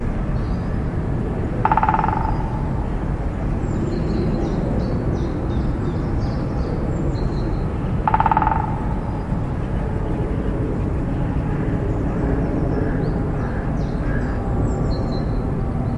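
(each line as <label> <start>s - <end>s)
Various birds call with sharp tapping rhythms and melodic chirps in an urban green space during the early hours. 0.0s - 16.0s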